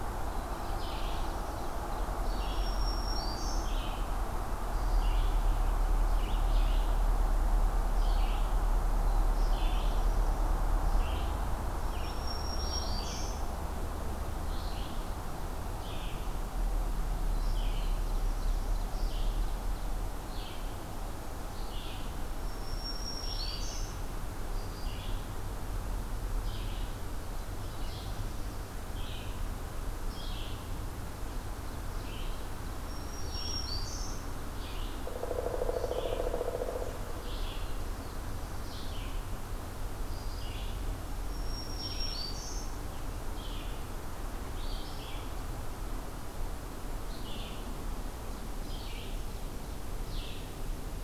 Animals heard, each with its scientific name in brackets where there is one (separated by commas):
Black-throated Blue Warbler (Setophaga caerulescens), Pileated Woodpecker (Dryocopus pileatus), Black-throated Green Warbler (Setophaga virens), Ovenbird (Seiurus aurocapilla), Red-eyed Vireo (Vireo olivaceus)